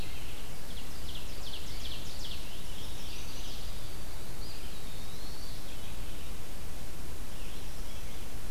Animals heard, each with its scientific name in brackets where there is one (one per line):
Mourning Warbler (Geothlypis philadelphia)
Scarlet Tanager (Piranga olivacea)
Ovenbird (Seiurus aurocapilla)
Red-eyed Vireo (Vireo olivaceus)
Chestnut-sided Warbler (Setophaga pensylvanica)
Eastern Wood-Pewee (Contopus virens)